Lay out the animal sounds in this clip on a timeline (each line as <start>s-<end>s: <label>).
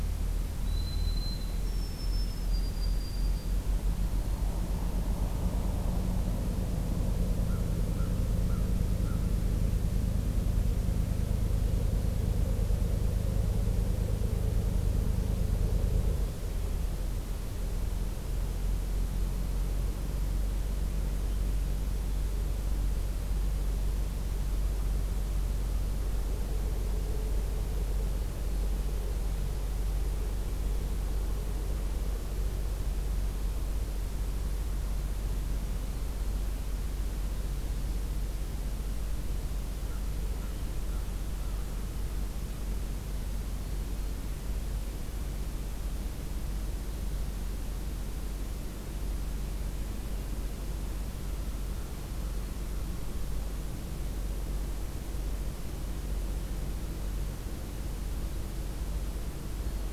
0.5s-3.7s: White-throated Sparrow (Zonotrichia albicollis)
7.0s-9.3s: American Crow (Corvus brachyrhynchos)
39.7s-41.8s: American Crow (Corvus brachyrhynchos)